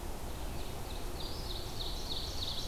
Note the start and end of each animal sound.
[0.00, 2.67] Ovenbird (Seiurus aurocapilla)

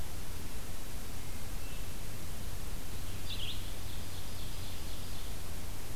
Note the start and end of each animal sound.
[0.00, 5.95] Red-eyed Vireo (Vireo olivaceus)
[3.11, 5.49] Ovenbird (Seiurus aurocapilla)

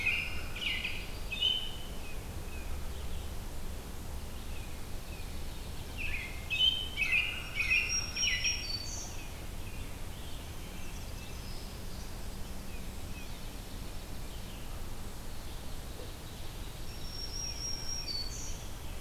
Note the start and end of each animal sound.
[0.00, 2.03] American Robin (Turdus migratorius)
[1.85, 3.00] Tufted Titmouse (Baeolophus bicolor)
[4.20, 5.62] Tufted Titmouse (Baeolophus bicolor)
[5.64, 11.42] American Robin (Turdus migratorius)
[7.28, 9.28] Black-throated Green Warbler (Setophaga virens)
[10.63, 11.65] Eastern Kingbird (Tyrannus tyrannus)
[12.47, 13.42] Tufted Titmouse (Baeolophus bicolor)
[13.12, 14.72] Dark-eyed Junco (Junco hyemalis)
[16.67, 18.69] Black-throated Green Warbler (Setophaga virens)
[17.32, 18.46] Tufted Titmouse (Baeolophus bicolor)

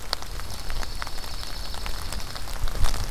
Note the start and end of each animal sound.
[0.27, 2.39] Dark-eyed Junco (Junco hyemalis)

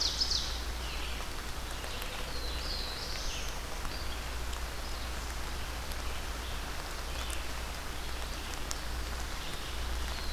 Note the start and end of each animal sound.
[0.00, 0.63] Ovenbird (Seiurus aurocapilla)
[0.00, 10.33] Red-eyed Vireo (Vireo olivaceus)
[1.86, 3.52] Black-throated Blue Warbler (Setophaga caerulescens)

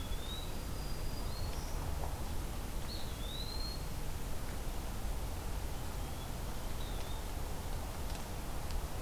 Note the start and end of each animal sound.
[0.00, 0.56] Eastern Wood-Pewee (Contopus virens)
[0.41, 1.75] Black-throated Green Warbler (Setophaga virens)
[2.86, 3.91] Eastern Wood-Pewee (Contopus virens)
[5.62, 6.76] unidentified call
[6.70, 7.33] Eastern Wood-Pewee (Contopus virens)

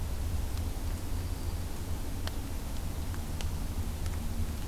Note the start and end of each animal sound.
[0.89, 1.77] Black-throated Green Warbler (Setophaga virens)

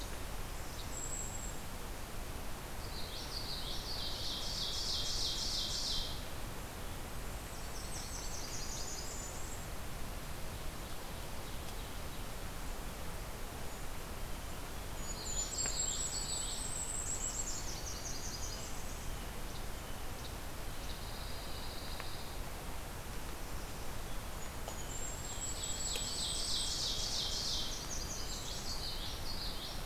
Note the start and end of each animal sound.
[0.68, 1.74] Golden-crowned Kinglet (Regulus satrapa)
[2.83, 4.48] Common Yellowthroat (Geothlypis trichas)
[4.32, 6.12] Ovenbird (Seiurus aurocapilla)
[6.96, 8.35] Golden-crowned Kinglet (Regulus satrapa)
[7.48, 9.75] Blackburnian Warbler (Setophaga fusca)
[10.45, 12.37] Ovenbird (Seiurus aurocapilla)
[14.76, 17.60] Golden-crowned Kinglet (Regulus satrapa)
[14.94, 16.91] Common Yellowthroat (Geothlypis trichas)
[17.27, 19.11] Blackburnian Warbler (Setophaga fusca)
[19.37, 19.62] Least Flycatcher (Empidonax minimus)
[20.07, 20.35] Least Flycatcher (Empidonax minimus)
[20.66, 22.45] Pine Warbler (Setophaga pinus)
[24.29, 27.01] Golden-crowned Kinglet (Regulus satrapa)
[25.24, 27.64] Ovenbird (Seiurus aurocapilla)
[27.10, 28.83] Blackburnian Warbler (Setophaga fusca)
[28.34, 29.85] Common Yellowthroat (Geothlypis trichas)

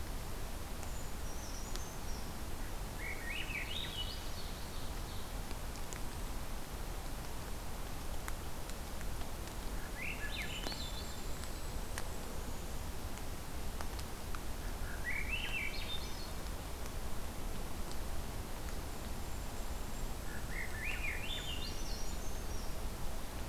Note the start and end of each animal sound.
[0.87, 2.27] Brown Creeper (Certhia americana)
[2.89, 4.41] Swainson's Thrush (Catharus ustulatus)
[3.69, 5.34] Ovenbird (Seiurus aurocapilla)
[5.95, 6.43] Golden-crowned Kinglet (Regulus satrapa)
[9.71, 11.34] Swainson's Thrush (Catharus ustulatus)
[10.36, 12.70] Golden-crowned Kinglet (Regulus satrapa)
[14.70, 16.32] Swainson's Thrush (Catharus ustulatus)
[18.85, 21.85] Golden-crowned Kinglet (Regulus satrapa)
[20.19, 21.93] Swainson's Thrush (Catharus ustulatus)
[21.38, 22.67] Brown Creeper (Certhia americana)

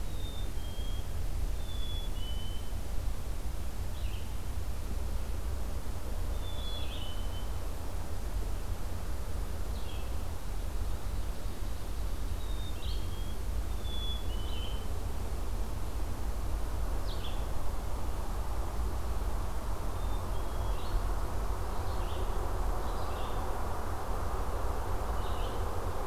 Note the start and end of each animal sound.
[0.12, 1.11] Black-capped Chickadee (Poecile atricapillus)
[1.54, 2.78] Black-capped Chickadee (Poecile atricapillus)
[3.79, 26.07] Red-eyed Vireo (Vireo olivaceus)
[6.38, 7.67] Black-capped Chickadee (Poecile atricapillus)
[12.32, 13.45] Black-capped Chickadee (Poecile atricapillus)
[13.72, 14.95] Black-capped Chickadee (Poecile atricapillus)
[19.86, 20.92] Wild Turkey (Meleagris gallopavo)

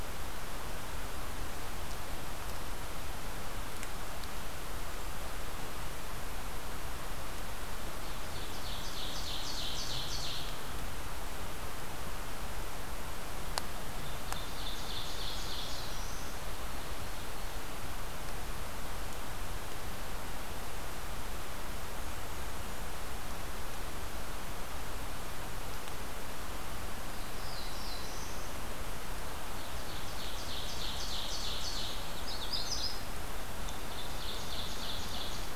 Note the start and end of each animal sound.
[7.89, 10.57] Ovenbird (Seiurus aurocapilla)
[14.09, 15.93] Ovenbird (Seiurus aurocapilla)
[15.35, 16.39] Black-throated Blue Warbler (Setophaga caerulescens)
[21.79, 22.97] Blackburnian Warbler (Setophaga fusca)
[27.23, 28.55] Black-throated Blue Warbler (Setophaga caerulescens)
[29.61, 32.04] Ovenbird (Seiurus aurocapilla)
[31.71, 32.70] Blackburnian Warbler (Setophaga fusca)
[32.03, 33.06] Magnolia Warbler (Setophaga magnolia)
[33.62, 35.55] Ovenbird (Seiurus aurocapilla)

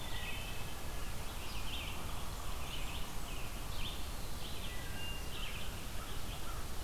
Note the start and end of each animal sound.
[0.00, 0.66] Wood Thrush (Hylocichla mustelina)
[0.00, 6.83] American Robin (Turdus migratorius)
[4.38, 5.68] Wood Thrush (Hylocichla mustelina)
[5.45, 6.83] American Crow (Corvus brachyrhynchos)

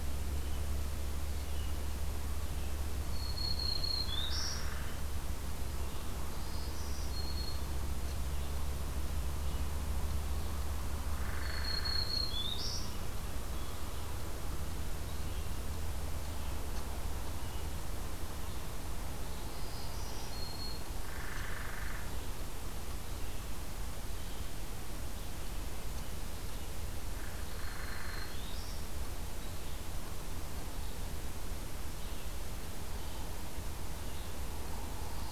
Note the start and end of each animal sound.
[0.00, 35.31] Red-eyed Vireo (Vireo olivaceus)
[3.12, 4.70] Black-throated Green Warbler (Setophaga virens)
[6.26, 7.83] Black-throated Green Warbler (Setophaga virens)
[11.10, 12.07] Hairy Woodpecker (Dryobates villosus)
[11.39, 12.91] Black-throated Green Warbler (Setophaga virens)
[19.55, 20.89] Black-throated Green Warbler (Setophaga virens)
[20.99, 22.15] Hairy Woodpecker (Dryobates villosus)
[27.02, 28.40] Hairy Woodpecker (Dryobates villosus)
[27.29, 28.83] Black-throated Green Warbler (Setophaga virens)

